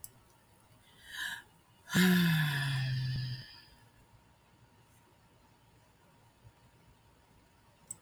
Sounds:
Sigh